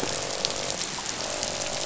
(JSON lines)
{"label": "biophony, croak", "recorder": "SoundTrap 500"}